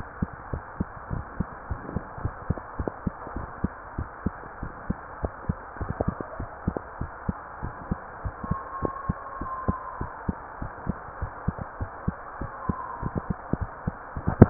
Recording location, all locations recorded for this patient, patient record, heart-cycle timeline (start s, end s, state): mitral valve (MV)
aortic valve (AV)+pulmonary valve (PV)+tricuspid valve (TV)+mitral valve (MV)
#Age: Child
#Sex: Female
#Height: 130.0 cm
#Weight: 34.3 kg
#Pregnancy status: False
#Murmur: Absent
#Murmur locations: nan
#Most audible location: nan
#Systolic murmur timing: nan
#Systolic murmur shape: nan
#Systolic murmur grading: nan
#Systolic murmur pitch: nan
#Systolic murmur quality: nan
#Diastolic murmur timing: nan
#Diastolic murmur shape: nan
#Diastolic murmur grading: nan
#Diastolic murmur pitch: nan
#Diastolic murmur quality: nan
#Outcome: Normal
#Campaign: 2015 screening campaign
0.00	0.50	unannotated
0.50	0.64	S1
0.64	0.78	systole
0.78	0.85	S2
0.85	1.10	diastole
1.10	1.26	S1
1.26	1.38	systole
1.38	1.48	S2
1.48	1.70	diastole
1.70	1.82	S1
1.82	1.92	systole
1.92	2.04	S2
2.04	2.22	diastole
2.22	2.36	S1
2.36	2.48	systole
2.48	2.58	S2
2.58	2.77	diastole
2.77	2.85	S1
2.85	3.02	systole
3.02	3.14	S2
3.14	3.34	diastole
3.34	3.48	S1
3.48	3.60	systole
3.60	3.74	S2
3.74	3.96	diastole
3.96	4.06	S1
4.06	4.24	systole
4.24	4.33	S2
4.33	4.62	diastole
4.62	4.74	S1
4.74	4.88	systole
4.88	4.98	S2
4.98	5.22	diastole
5.22	5.34	S1
5.34	5.48	systole
5.48	5.58	S2
5.58	5.80	diastole
5.80	5.94	S1
5.94	6.06	systole
6.06	6.18	S2
6.18	6.38	diastole
6.38	6.47	S1
6.47	6.66	systole
6.66	6.76	S2
6.76	6.99	diastole
6.99	7.08	S1
7.08	7.24	systole
7.24	7.38	S2
7.38	7.62	diastole
7.62	7.74	S1
7.74	7.88	systole
7.88	7.98	S2
7.98	8.22	diastole
8.22	8.34	S1
8.34	8.48	systole
8.48	8.58	S2
8.58	8.82	diastole
8.82	8.92	S1
8.92	9.06	systole
9.06	9.16	S2
9.16	9.38	diastole
9.38	9.50	S1
9.50	9.64	systole
9.64	9.76	S2
9.76	10.00	diastole
10.00	10.10	S1
10.10	10.24	systole
10.24	10.36	S2
10.36	10.60	diastole
10.60	10.72	S1
10.72	10.86	systole
10.86	10.96	S2
10.96	11.20	diastole
11.20	11.32	S1
11.32	11.44	systole
11.44	11.58	S2
11.58	11.80	diastole
11.80	11.92	S1
11.92	12.04	systole
12.04	12.18	S2
12.18	12.39	diastole
12.39	12.49	S1
12.49	12.68	systole
12.68	12.74	S2
12.74	13.02	diastole
13.02	13.14	S1
13.14	13.26	systole
13.26	13.38	S2
13.38	13.60	diastole
13.60	13.72	S1
13.72	13.84	systole
13.84	13.94	S2
13.94	14.14	diastole
14.14	14.22	S1
14.22	14.50	unannotated